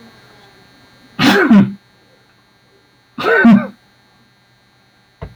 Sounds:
Sneeze